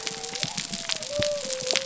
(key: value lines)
label: biophony
recorder: SoundTrap 300